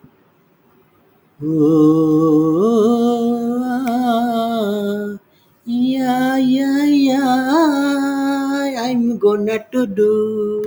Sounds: Sigh